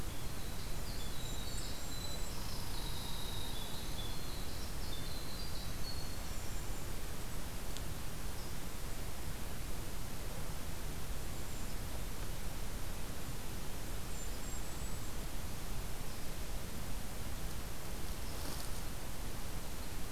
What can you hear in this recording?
Winter Wren, Golden-crowned Kinglet, Red Squirrel